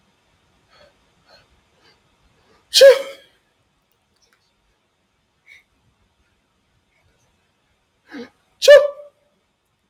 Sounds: Sneeze